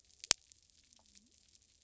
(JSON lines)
{"label": "biophony", "recorder": "SoundTrap 300"}